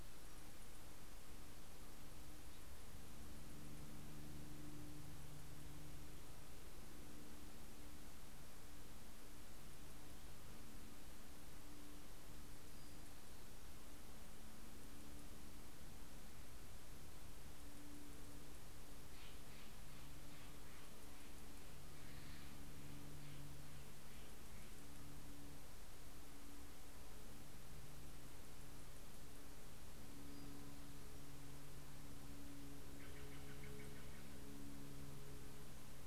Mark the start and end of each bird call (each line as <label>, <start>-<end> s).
Steller's Jay (Cyanocitta stelleri), 18.3-26.1 s
Townsend's Warbler (Setophaga townsendi), 29.2-31.8 s
Steller's Jay (Cyanocitta stelleri), 32.3-35.2 s